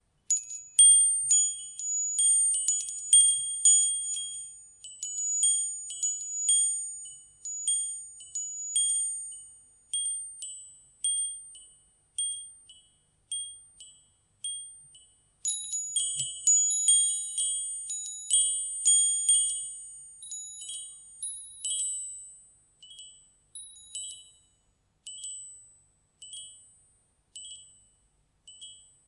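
Wind chimes ringing. 0.0 - 29.1

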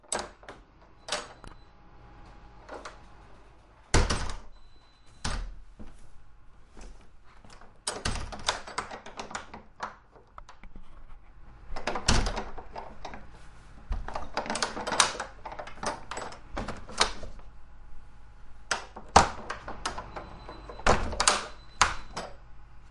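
A door is opening or closing. 0.0 - 1.3
Footsteps. 1.4 - 1.8
Wood creaking. 2.5 - 3.1
A door is opening or closing. 3.9 - 4.5
A door is opening or closing. 5.2 - 5.9
A door is opening or closing. 7.8 - 10.0
A door is opening or closing. 11.7 - 13.2
A door is opening or closing. 13.9 - 17.4
A door is opening or closing. 18.7 - 22.9
An alarm is sounding. 20.8 - 22.9

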